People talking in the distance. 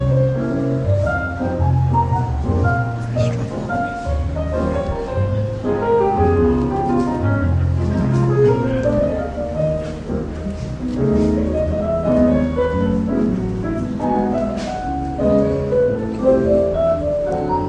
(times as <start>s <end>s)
4.8s 17.7s